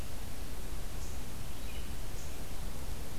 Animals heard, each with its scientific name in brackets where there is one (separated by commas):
Red-eyed Vireo (Vireo olivaceus)